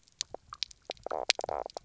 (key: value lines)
label: biophony, knock croak
recorder: SoundTrap 300